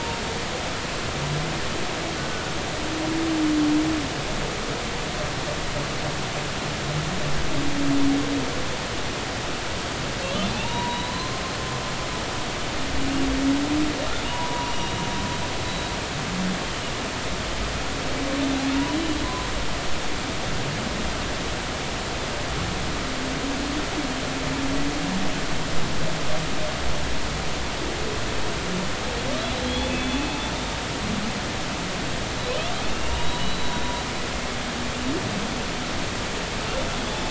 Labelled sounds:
2.2	2.5	humpback whale, 1.4 to 1.5 kHz
10.5	11.4	humpback whale, 0.80 to 4.2 kHz
14.3	14.9	humpback whale, 0.90 to 2.9 kHz
15.6	15.9	humpback whale, 3.8 to 4.0 kHz
29.6	30.2	humpback whale, 3.2 to 3.6 kHz
32.9	33.9	humpback whale, 2.6 to 4.0 kHz

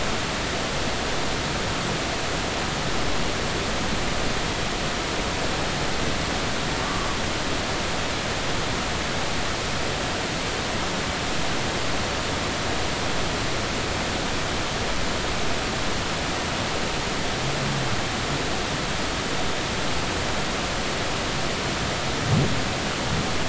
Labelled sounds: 6.8	7.1	humpback whale, 1.1 to 1.2 kHz

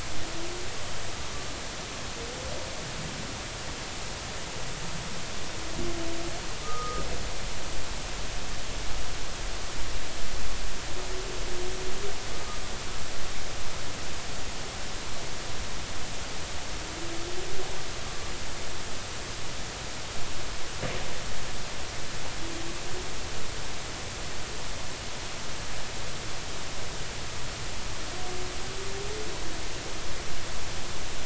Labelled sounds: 6.6	7.0	humpback whale, 1.2 to 1.3 kHz

